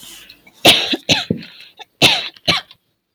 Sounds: Cough